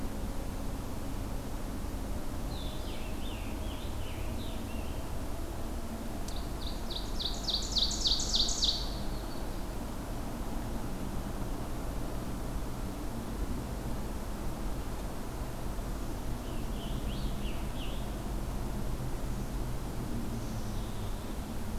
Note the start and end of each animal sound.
[2.37, 5.08] Scarlet Tanager (Piranga olivacea)
[5.88, 9.02] Ovenbird (Seiurus aurocapilla)
[16.19, 18.15] Scarlet Tanager (Piranga olivacea)
[20.15, 21.37] Black-capped Chickadee (Poecile atricapillus)

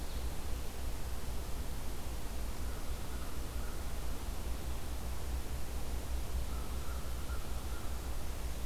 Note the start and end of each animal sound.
[2.43, 3.88] American Crow (Corvus brachyrhynchos)
[6.41, 8.00] American Crow (Corvus brachyrhynchos)

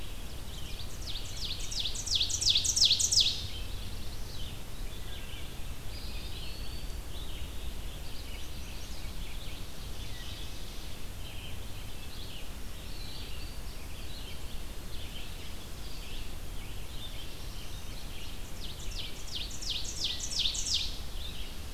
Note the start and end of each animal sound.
[0.00, 21.73] Red-eyed Vireo (Vireo olivaceus)
[0.29, 3.54] Ovenbird (Seiurus aurocapilla)
[3.42, 4.61] Black-throated Blue Warbler (Setophaga caerulescens)
[5.73, 7.08] Eastern Wood-Pewee (Contopus virens)
[8.17, 9.20] Chestnut-sided Warbler (Setophaga pensylvanica)
[9.67, 10.59] Wood Thrush (Hylocichla mustelina)
[16.69, 18.03] Black-throated Blue Warbler (Setophaga caerulescens)
[18.34, 20.97] Ovenbird (Seiurus aurocapilla)

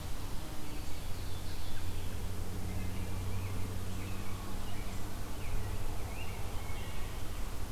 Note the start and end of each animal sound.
[0.81, 1.97] Ovenbird (Seiurus aurocapilla)
[2.65, 6.98] Rose-breasted Grosbeak (Pheucticus ludovicianus)

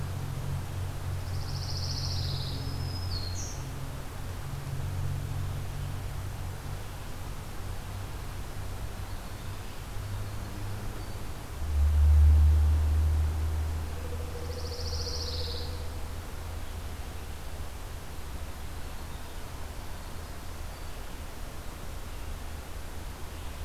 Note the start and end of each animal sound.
[1.10, 2.59] Pine Warbler (Setophaga pinus)
[2.05, 3.65] Black-throated Green Warbler (Setophaga virens)
[8.60, 11.56] Winter Wren (Troglodytes hiemalis)
[13.77, 15.68] Pileated Woodpecker (Dryocopus pileatus)
[14.11, 15.86] Pine Warbler (Setophaga pinus)
[18.61, 21.07] Winter Wren (Troglodytes hiemalis)

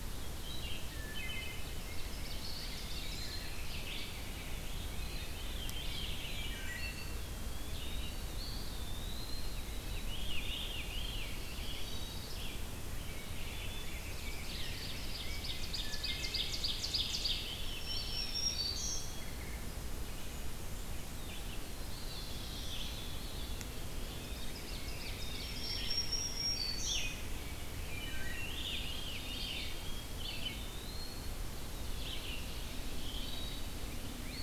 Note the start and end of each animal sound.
[0.00, 8.22] Red-eyed Vireo (Vireo olivaceus)
[0.91, 1.76] Wood Thrush (Hylocichla mustelina)
[1.59, 3.42] Ovenbird (Seiurus aurocapilla)
[1.62, 5.31] Rose-breasted Grosbeak (Pheucticus ludovicianus)
[2.40, 3.85] Eastern Wood-Pewee (Contopus virens)
[4.91, 6.77] Veery (Catharus fuscescens)
[6.34, 7.18] Wood Thrush (Hylocichla mustelina)
[6.68, 9.62] Eastern Wood-Pewee (Contopus virens)
[9.57, 11.83] Veery (Catharus fuscescens)
[10.84, 12.23] Black-throated Blue Warbler (Setophaga caerulescens)
[11.34, 34.43] Red-eyed Vireo (Vireo olivaceus)
[12.66, 15.83] Rose-breasted Grosbeak (Pheucticus ludovicianus)
[13.54, 14.65] Blackburnian Warbler (Setophaga fusca)
[13.74, 17.75] Ovenbird (Seiurus aurocapilla)
[15.79, 16.72] Wood Thrush (Hylocichla mustelina)
[17.43, 19.26] Black-throated Green Warbler (Setophaga virens)
[17.81, 19.13] Eastern Wood-Pewee (Contopus virens)
[20.03, 21.41] Blackburnian Warbler (Setophaga fusca)
[21.09, 23.17] Black-throated Blue Warbler (Setophaga caerulescens)
[21.84, 22.90] Eastern Wood-Pewee (Contopus virens)
[22.60, 23.70] Veery (Catharus fuscescens)
[23.36, 24.55] Eastern Wood-Pewee (Contopus virens)
[23.84, 27.82] Rose-breasted Grosbeak (Pheucticus ludovicianus)
[23.97, 25.86] Ovenbird (Seiurus aurocapilla)
[25.09, 27.13] Black-throated Green Warbler (Setophaga virens)
[27.89, 28.51] Wood Thrush (Hylocichla mustelina)
[28.27, 29.96] Veery (Catharus fuscescens)
[30.23, 31.58] Eastern Wood-Pewee (Contopus virens)
[31.81, 33.24] Ovenbird (Seiurus aurocapilla)
[32.98, 33.82] Wood Thrush (Hylocichla mustelina)

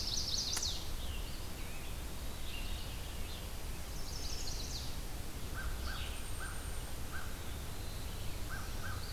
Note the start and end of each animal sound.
[0.00, 0.93] Chestnut-sided Warbler (Setophaga pensylvanica)
[0.00, 9.12] Red-eyed Vireo (Vireo olivaceus)
[0.60, 3.51] Scarlet Tanager (Piranga olivacea)
[1.26, 2.65] Eastern Wood-Pewee (Contopus virens)
[3.83, 4.85] Chestnut-sided Warbler (Setophaga pensylvanica)
[5.53, 9.12] American Crow (Corvus brachyrhynchos)
[5.92, 7.05] Golden-crowned Kinglet (Regulus satrapa)
[7.22, 8.07] Eastern Wood-Pewee (Contopus virens)

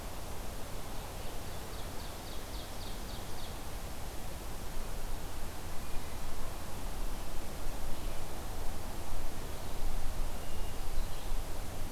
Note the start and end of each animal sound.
[1.17, 3.69] Ovenbird (Seiurus aurocapilla)
[10.32, 11.21] Hermit Thrush (Catharus guttatus)

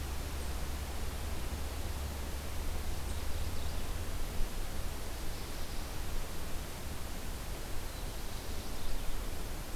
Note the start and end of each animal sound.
[2.78, 3.85] Mourning Warbler (Geothlypis philadelphia)
[4.98, 6.04] Black-throated Blue Warbler (Setophaga caerulescens)
[7.77, 9.16] Mourning Warbler (Geothlypis philadelphia)

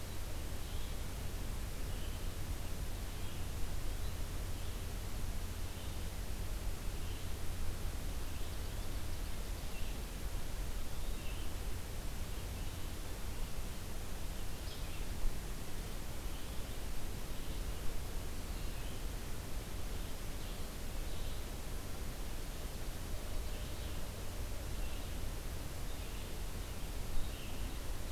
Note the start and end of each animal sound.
[0.00, 28.11] Blue-headed Vireo (Vireo solitarius)
[8.10, 9.82] Ovenbird (Seiurus aurocapilla)
[14.55, 14.83] Yellow-bellied Flycatcher (Empidonax flaviventris)

